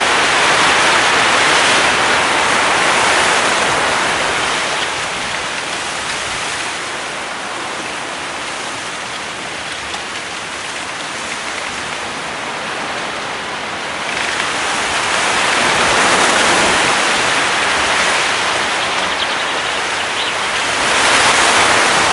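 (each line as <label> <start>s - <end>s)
Wind blows loudly through a field. 0.0s - 6.4s
Wind blowing through a field. 6.4s - 13.7s
Silent clicking noises from bamboos in the background. 9.6s - 12.0s
Wind blows loudly through a field. 13.8s - 22.1s
A bird is singing in the background. 18.6s - 20.7s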